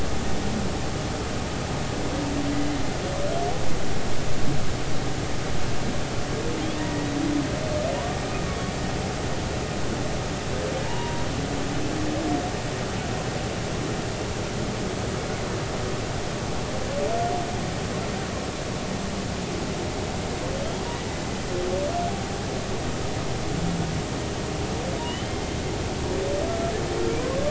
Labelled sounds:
2.5	2.8	humpback whale, 2.0 to 2.1 kHz
6.8	7.1	humpback whale, 0.90 to 2.0 kHz
10.8	11.3	humpback whale, 0.86 to 1.0 kHz
25.0	25.3	humpback whale, 2.8 to 3.2 kHz

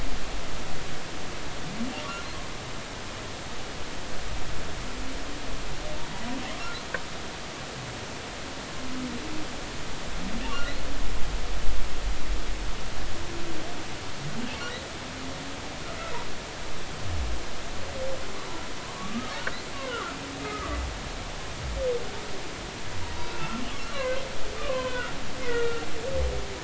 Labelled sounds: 10.4	10.7	humpback whale, 2.6 to 2.9 kHz
18.9	20.2	humpback whale, 1.0 to 1.6 kHz
20.5	20.8	humpback whale, 1.1 to 1.3 kHz
23.1	23.6	humpback whale, 1.3 to 4.0 kHz
23.9	25.9	humpback whale, 0.96 to 3.2 kHz

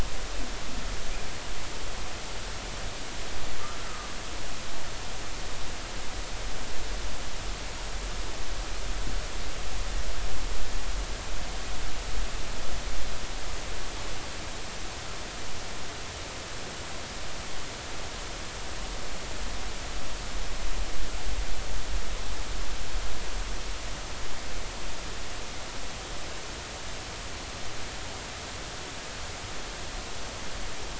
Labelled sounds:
3.8	4.1	humpback whale, 1.1 to 1.4 kHz

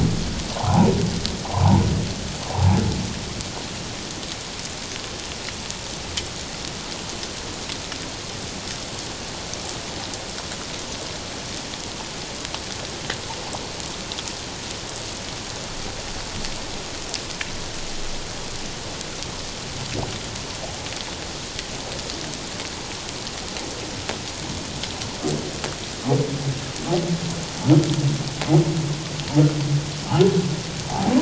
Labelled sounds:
0.6	0.9	humpback whale, 0.78 to 1.4 kHz
1.5	2.8	humpback whale, 0.78 to 1.1 kHz
30.9	31.2	humpback whale, 0.78 to 1.0 kHz

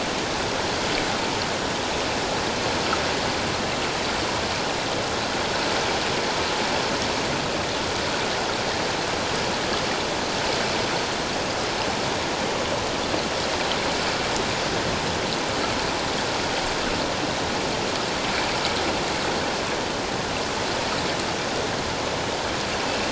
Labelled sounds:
22.8	23.1	killer whale, offshore, 2.6 to 2.8 kHz

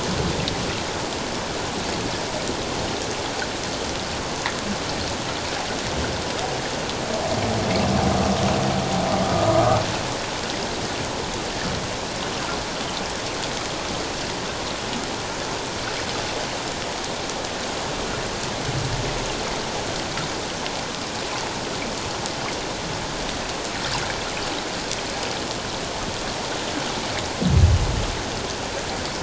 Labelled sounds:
9.3	9.5	humpback whale, 1.2 to 1.3 kHz

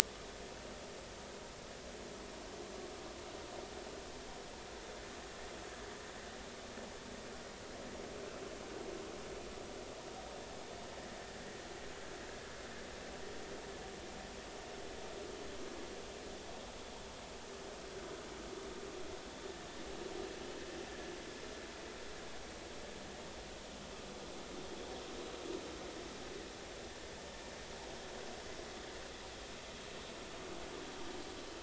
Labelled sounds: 5.6	5.9	vessel noise, 1.6 to 1.8 kHz

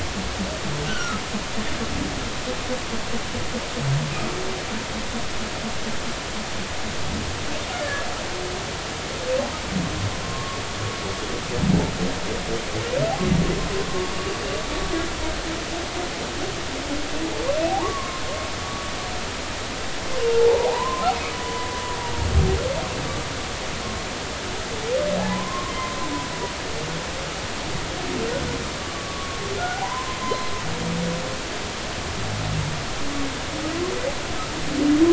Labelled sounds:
0.9	1.2	humpback whale, 1.2 to 3.1 kHz
7.8	8.1	humpback whale, 1.6 to 1.8 kHz
10.2	10.6	humpback whale, 1.0 to 1.2 kHz
13.9	14.1	humpback whale, 0.99 to 1.2 kHz
17.7	18.2	humpback whale, 0.80 to 1.2 kHz
18.6	18.9	humpback whale, 1.1 to 1.2 kHz
20.3	21.7	humpback whale, 0.80 to 1.1 kHz
25.2	25.7	humpback whale, 0.80 to 1.2 kHz
28.8	30.5	humpback whale, 0.80 to 1.5 kHz

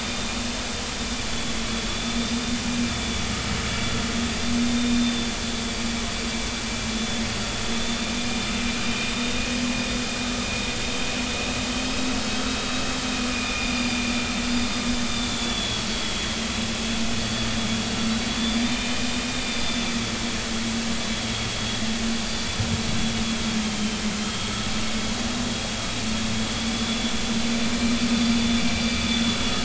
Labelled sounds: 1.3	2.4	vessel noise, 3.4 to 3.6 kHz
2.9	3.2	vessel noise, 3.4 to 3.7 kHz
4.6	5.3	vessel noise, 3.5 to 3.7 kHz
7.8	9.4	vessel noise, 3.5 to 3.7 kHz
13.3	14.0	vessel noise, 2.3 to 4.9 kHz
15.1	16.3	vessel noise, 3.2 to 4.6 kHz
18.4	19.9	vessel noise, 2.3 to 4.8 kHz
22.1	22.5	vessel noise, 4.6 to 4.7 kHz
23.7	24.5	vessel noise, 3.0 to 3.3 kHz
26.7	27.1	vessel noise, 3.4 to 3.5 kHz
28.7	29.4	vessel noise, 3.4 to 4.8 kHz

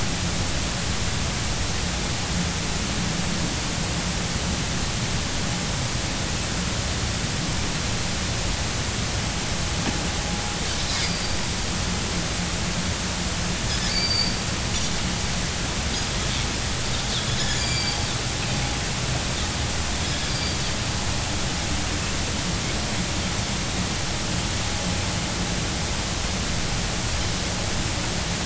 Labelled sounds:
11.0	11.4	Pacific white-sided dolphin, 4.6 to 4.9 kHz
13.9	14.4	Pacific white-sided dolphin, 4.5 to 4.8 kHz
17.5	18.0	Pacific white-sided dolphin, 2.3 to 7.2 kHz
20.3	20.6	Pacific white-sided dolphin, 4.5 to 4.8 kHz

